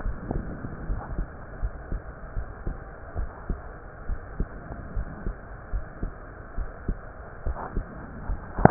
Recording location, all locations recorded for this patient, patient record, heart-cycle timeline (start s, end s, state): pulmonary valve (PV)
aortic valve (AV)+pulmonary valve (PV)+tricuspid valve (TV)+mitral valve (MV)
#Age: Child
#Sex: Female
#Height: 149.0 cm
#Weight: 35.6 kg
#Pregnancy status: False
#Murmur: Absent
#Murmur locations: nan
#Most audible location: nan
#Systolic murmur timing: nan
#Systolic murmur shape: nan
#Systolic murmur grading: nan
#Systolic murmur pitch: nan
#Systolic murmur quality: nan
#Diastolic murmur timing: nan
#Diastolic murmur shape: nan
#Diastolic murmur grading: nan
#Diastolic murmur pitch: nan
#Diastolic murmur quality: nan
#Outcome: Abnormal
#Campaign: 2015 screening campaign
0.00	3.14	unannotated
3.14	3.30	S1
3.30	3.48	systole
3.48	3.62	S2
3.62	4.06	diastole
4.06	4.20	S1
4.20	4.36	systole
4.36	4.48	S2
4.48	4.92	diastole
4.92	5.06	S1
5.06	5.22	systole
5.22	5.36	S2
5.36	5.70	diastole
5.70	5.84	S1
5.84	5.99	systole
5.99	6.12	S2
6.12	6.53	diastole
6.53	6.70	S1
6.70	6.84	systole
6.84	6.98	S2
6.98	7.42	diastole
7.42	7.58	S1
7.58	7.73	systole
7.73	7.90	S2
7.90	8.24	diastole
8.24	8.42	S1
8.42	8.70	unannotated